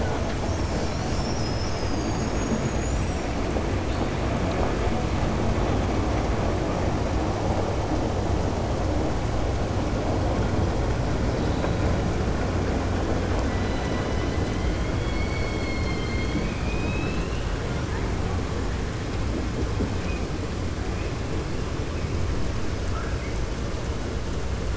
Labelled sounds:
22.8	23.4	killer whale, 0.70 to 2.6 kHz

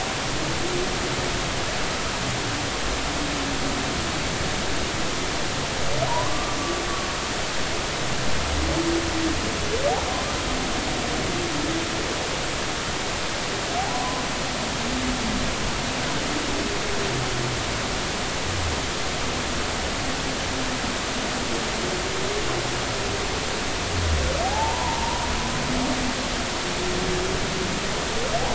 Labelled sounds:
6.1	6.6	humpback whale, 0.90 to 1.2 kHz
13.9	14.2	humpback whale, 0.93 to 1.1 kHz
24.4	25.2	humpback whale, 0.80 to 1.0 kHz

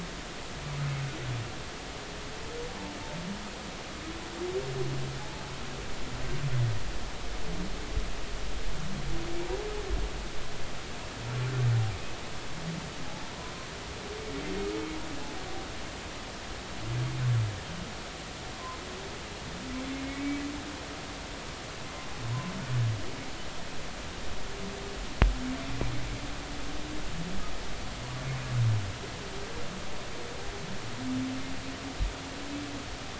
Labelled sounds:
5.2	5.4	humpback whale, 0.80 to 0.96 kHz
20.1	20.4	humpback whale, 2.1 to 2.3 kHz

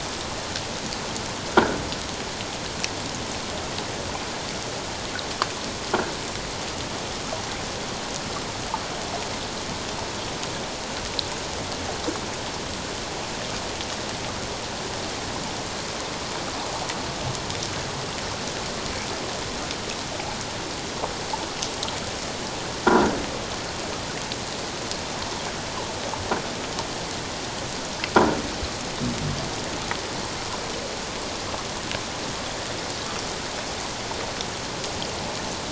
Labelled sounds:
1.5	1.8	croaking sound likely from a nearby submerged object, 1.3 to 1.7 kHz
22.9	23.2	croaking sound likely from a nearby submerged object, 1.3 to 1.7 kHz

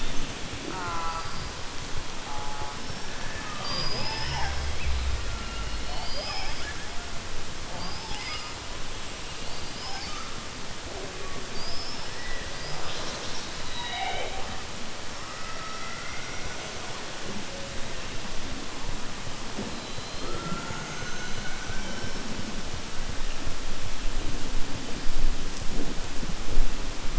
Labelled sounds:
5.7	6.8	killer whale, southern resident, 0.53 to 5.4 kHz
7.7	8.5	killer whale, southern resident, 1.1 to 5.4 kHz
15.2	16.6	killer whale, southern resident, 1.1 to 2.2 kHz

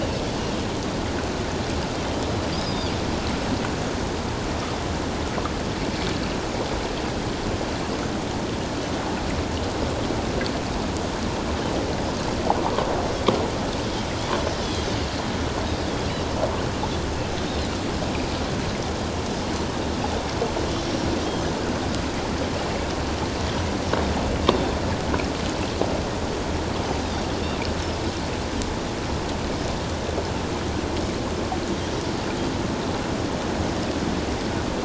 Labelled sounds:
2.6	2.9	Pacific white-sided dolphin, 3.6 to 5.0 kHz

